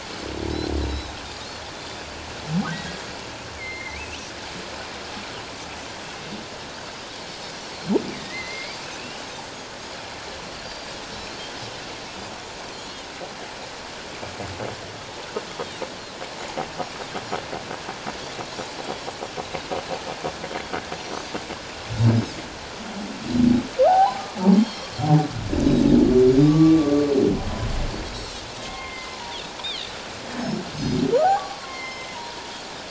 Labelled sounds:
0.9	1.2	Pacific white-sided dolphin, 3.7 to 4.0 kHz
2.7	3.0	humpback whale, 1.8 to 2.0 kHz
3.6	4.3	humpback whale, 2.0 to 3.0 kHz
8.1	9.2	humpback whale, 1.8 to 3.0 kHz
9.4	9.7	Pacific white-sided dolphin, 6.4 to 6.7 kHz
10.6	10.9	Pacific white-sided dolphin, 4.6 to 4.8 kHz
12.7	13.1	Pacific white-sided dolphin, 2.9 to 3.4 kHz
15.5	15.8	Pacific white-sided dolphin, 2.7 to 3.4 kHz
23.9	24.2	humpback whale, 0.78 to 1.1 kHz
24.5	24.9	Pacific white-sided dolphin, 3.1 to 4.4 kHz
26.4	26.9	humpback whale, 1.1 to 1.2 kHz
28.2	29.2	humpback whale, 1.0 to 7.8 kHz
29.1	29.9	Pacific white-sided dolphin, 0.88 to 3.8 kHz
30.7	31.0	Pacific white-sided dolphin, 4.8 to 6.5 kHz
31.2	32.2	humpback whale, 0.78 to 5.3 kHz

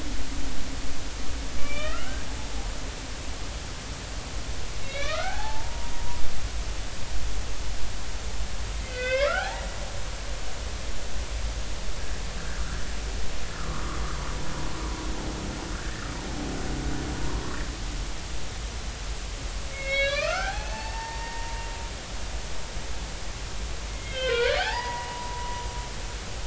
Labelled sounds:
1.6	2.3	humpback whale, 1.2 to 3.2 kHz
4.8	6.2	humpback whale, 0.80 to 4.2 kHz
8.8	9.7	humpback whale, 0.80 to 3.8 kHz
13.5	14.0	humpback whale, 1.0 to 1.5 kHz
15.8	16.1	humpback whale, 1.4 to 1.9 kHz
19.7	21.6	humpback whale, 0.80 to 4.9 kHz
23.9	25.6	humpback whale, 0.80 to 4.4 kHz

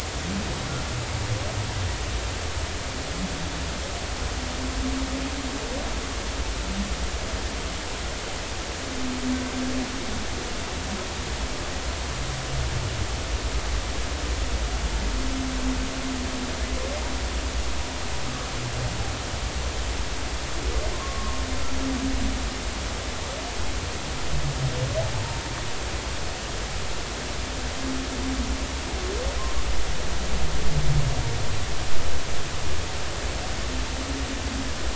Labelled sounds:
20.9	21.4	humpback whale, 0.99 to 1.2 kHz

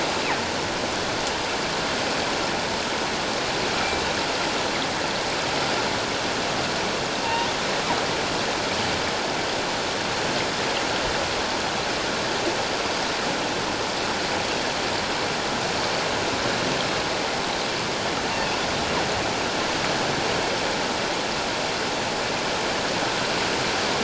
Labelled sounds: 7.2	7.5	killer whale, northern resident, G clan, 0.84 to 1.1 kHz

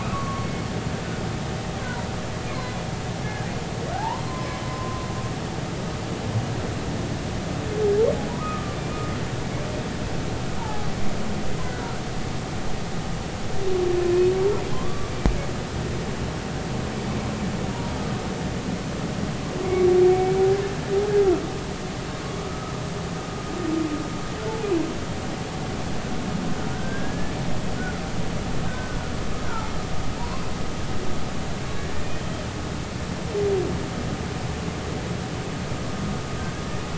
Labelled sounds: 0.0	0.5	humpback whale, 1.0 to 1.3 kHz
1.8	2.0	humpback whale, 0.90 to 1.1 kHz
2.5	2.8	humpback whale, 4.0 to 4.3 kHz
3.9	5.0	humpback whale, 0.80 to 1.1 kHz
8.3	8.8	humpback whale, 0.90 to 1.3 kHz
10.6	10.9	humpback whale, 0.80 to 1.0 kHz
14.7	15.1	humpback whale, 0.96 to 1.3 kHz
19.6	20.4	humpback whale, 2.1 to 2.3 kHz
22.5	22.7	humpback whale, 1.2 to 1.4 kHz
26.7	27.3	humpback whale, 1.4 to 1.8 kHz
28.7	29.0	humpback whale, 1.4 to 1.6 kHz
29.4	29.7	humpback whale, 1.2 to 1.6 kHz
30.2	30.4	humpback whale, 0.86 to 1.1 kHz
31.8	32.0	humpback whale, 1.6 to 1.9 kHz

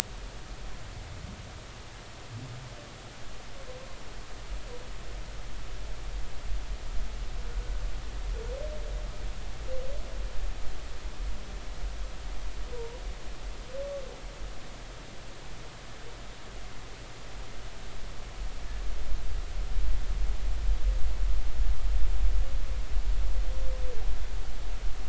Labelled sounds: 12.7	13.0	humpback whale, 0.90 to 1.0 kHz

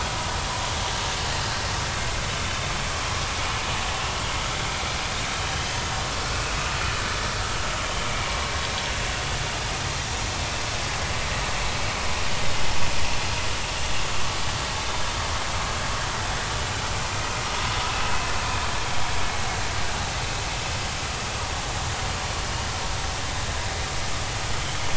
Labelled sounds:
2.4	2.7	vessel noise, 3.5 to 3.7 kHz
17.9	18.3	vessel noise, 2.5 to 2.7 kHz

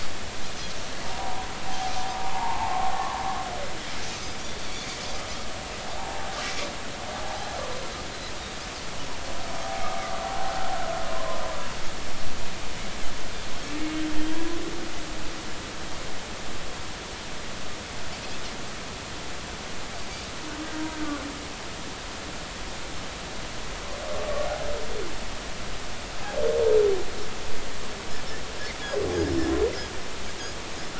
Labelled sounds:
1.0	1.5	humpback whale, 0.80 to 1.0 kHz
2.1	3.2	humpback whale, 0.80 to 1.2 kHz
4.7	4.9	Pacific white-sided dolphin, 2.2 to 2.4 kHz
6.0	6.2	humpback whale, 0.80 to 1.0 kHz
7.2	7.6	humpback whale, 0.80 to 0.96 kHz
11.1	11.4	humpback whale, 0.96 to 1.1 kHz
14.2	14.5	humpback whale, 3.0 to 3.3 kHz
20.9	21.2	humpback whale, 1.4 to 1.6 kHz

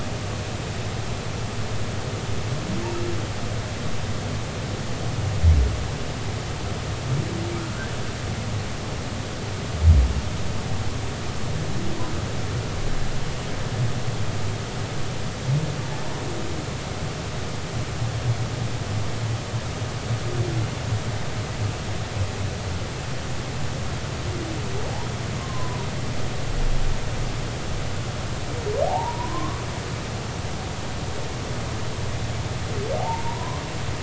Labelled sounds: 7.6	7.9	humpback whale, 1.3 to 1.8 kHz
25.4	25.9	humpback whale, 0.90 to 1.1 kHz
28.9	29.6	humpback whale, 0.80 to 1.2 kHz
33.0	33.6	humpback whale, 0.80 to 1.2 kHz

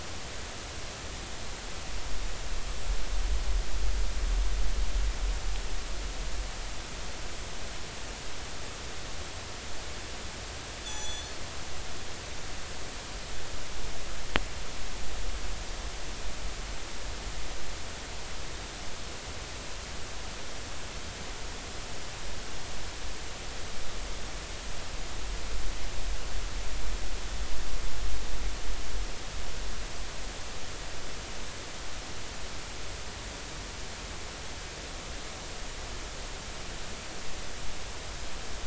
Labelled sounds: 10.8	11.3	killer whale, northern resident, G clan, 3.4 to 7.9 kHz

